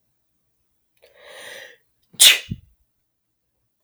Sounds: Sneeze